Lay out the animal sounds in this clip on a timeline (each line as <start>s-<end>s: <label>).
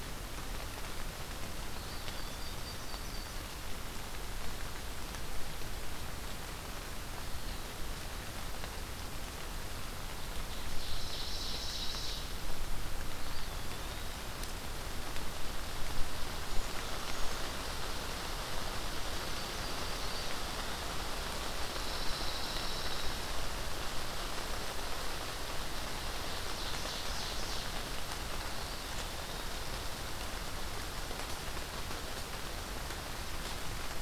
1.6s-2.9s: Eastern Wood-Pewee (Contopus virens)
1.9s-3.5s: Yellow-rumped Warbler (Setophaga coronata)
10.4s-12.4s: Ovenbird (Seiurus aurocapilla)
13.0s-14.3s: Eastern Wood-Pewee (Contopus virens)
19.2s-20.4s: Yellow-rumped Warbler (Setophaga coronata)
21.5s-23.4s: Pine Warbler (Setophaga pinus)
26.2s-27.8s: Ovenbird (Seiurus aurocapilla)